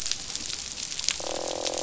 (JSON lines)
{"label": "biophony, croak", "recorder": "SoundTrap 500"}